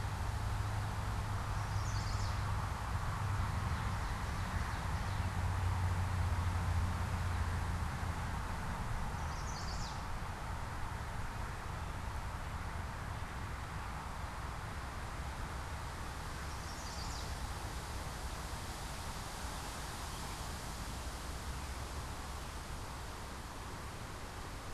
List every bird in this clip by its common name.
Chestnut-sided Warbler, Ovenbird